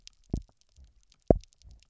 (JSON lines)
{"label": "biophony, double pulse", "recorder": "SoundTrap 300"}